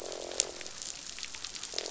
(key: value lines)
label: biophony, croak
recorder: SoundTrap 500